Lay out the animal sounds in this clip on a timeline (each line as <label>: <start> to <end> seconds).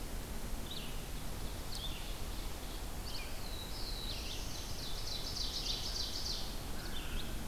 Red-eyed Vireo (Vireo olivaceus): 0.0 to 7.5 seconds
Ovenbird (Seiurus aurocapilla): 0.9 to 2.8 seconds
Black-throated Blue Warbler (Setophaga caerulescens): 3.1 to 4.9 seconds
Ovenbird (Seiurus aurocapilla): 4.1 to 6.6 seconds
American Crow (Corvus brachyrhynchos): 6.6 to 7.5 seconds